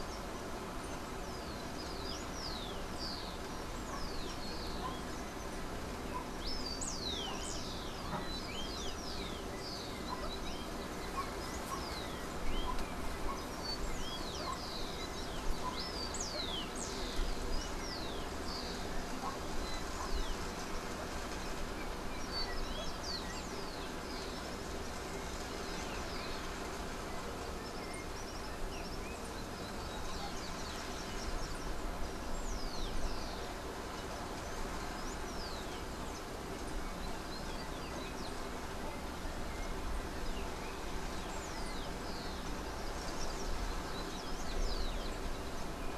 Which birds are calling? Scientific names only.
Zonotrichia capensis, Todirostrum cinereum